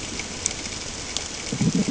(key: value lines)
label: ambient
recorder: HydroMoth